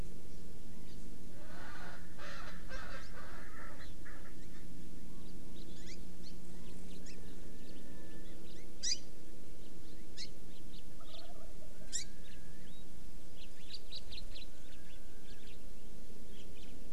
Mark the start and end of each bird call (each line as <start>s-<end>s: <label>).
0.7s-1.0s: Chinese Hwamei (Garrulax canorus)
0.9s-1.0s: Hawaii Amakihi (Chlorodrepanis virens)
1.3s-3.9s: Erckel's Francolin (Pternistis erckelii)
5.6s-5.7s: House Finch (Haemorhous mexicanus)
5.8s-6.4s: Hawaii Amakihi (Chlorodrepanis virens)
7.1s-7.2s: Hawaii Amakihi (Chlorodrepanis virens)
7.7s-7.8s: House Finch (Haemorhous mexicanus)
8.5s-8.6s: House Finch (Haemorhous mexicanus)
8.8s-9.0s: Hawaii Amakihi (Chlorodrepanis virens)
10.2s-10.3s: Hawaii Amakihi (Chlorodrepanis virens)
10.5s-10.8s: House Finch (Haemorhous mexicanus)
11.1s-11.3s: House Finch (Haemorhous mexicanus)
11.9s-12.1s: Hawaii Amakihi (Chlorodrepanis virens)
13.4s-14.8s: House Finch (Haemorhous mexicanus)
15.3s-15.6s: House Finch (Haemorhous mexicanus)
16.3s-16.7s: House Finch (Haemorhous mexicanus)